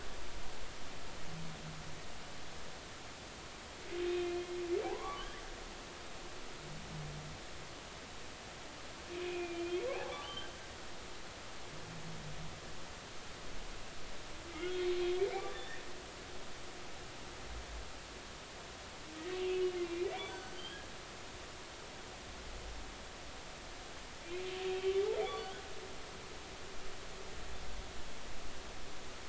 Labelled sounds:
4.1	5.3	humpback whale, 0.80 to 2.6 kHz
9.1	10.5	humpback whale, 0.96 to 3.3 kHz
14.6	14.9	humpback whale, 1.4 to 3.4 kHz
15.5	15.8	humpback whale, 1.6 to 2.0 kHz
20.2	20.8	humpback whale, 1.4 to 4.6 kHz
24.6	24.8	humpback whale, 2.6 to 2.7 kHz

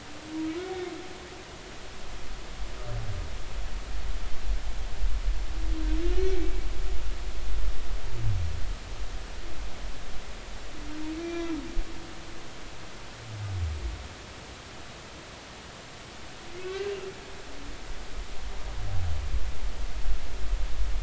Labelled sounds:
6.1	6.3	humpback whale, 2.8 to 3.1 kHz
11.2	11.5	humpback whale, 2.3 to 5.8 kHz
16.6	16.9	humpback whale, 1.5 to 1.7 kHz

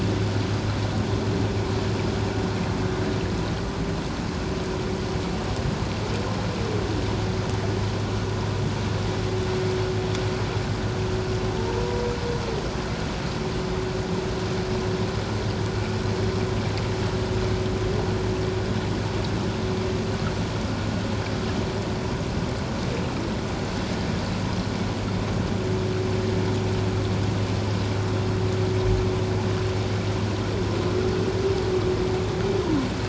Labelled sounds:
11.8	12.0	humpback whale, 0.94 to 1.0 kHz

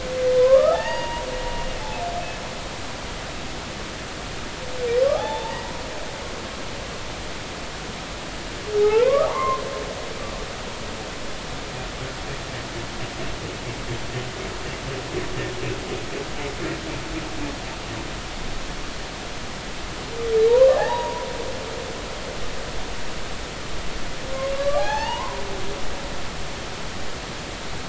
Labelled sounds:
0.4	1.3	humpback whale, 0.80 to 3.0 kHz
5.1	5.6	humpback whale, 0.80 to 3.7 kHz
8.8	9.6	humpback whale, 0.80 to 2.2 kHz
20.7	21.3	humpback whale, 0.80 to 2.0 kHz
24.5	25.4	humpback whale, 0.80 to 4.7 kHz

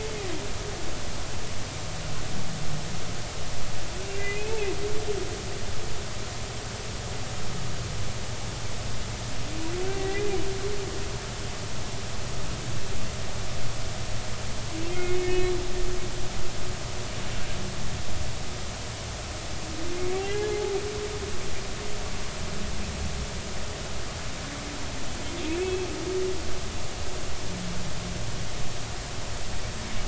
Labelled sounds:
4.1	4.6	humpback whale, 2.0 to 2.7 kHz
10.0	10.3	humpback whale, 1.9 to 2.1 kHz
14.9	15.5	humpback whale, 2.0 to 2.6 kHz
20.2	20.7	humpback whale, 0.80 to 1.8 kHz
25.5	25.9	humpback whale, 2.2 to 2.7 kHz

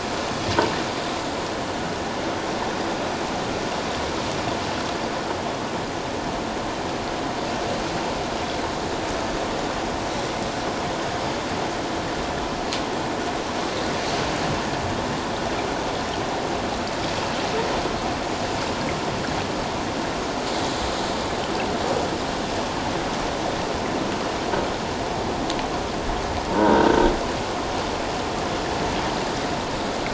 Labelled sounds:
26.5	27.1	croaking sound likely from a nearby submerged object, 0.88 to 1.6 kHz

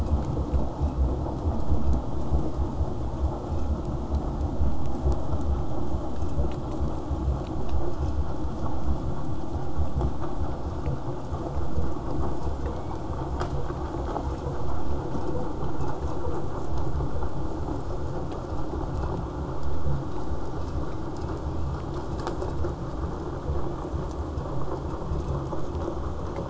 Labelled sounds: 12.5	13.0	killer whale, southern resident, J pod, 1.9 to 5.0 kHz
20.6	22.1	killer whale, southern resident, J pod, call S01, 1.5 to 3.1 kHz
23.4	24.1	killer whale, southern resident, J pod, 1.9 to 5.0 kHz

